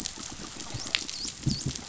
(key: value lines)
label: biophony, dolphin
recorder: SoundTrap 500